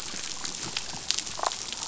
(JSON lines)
{"label": "biophony, damselfish", "recorder": "SoundTrap 500"}